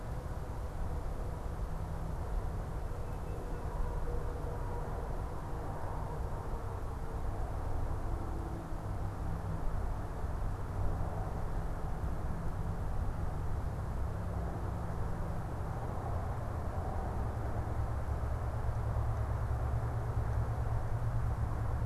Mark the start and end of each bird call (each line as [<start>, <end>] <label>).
[2.89, 3.79] Tufted Titmouse (Baeolophus bicolor)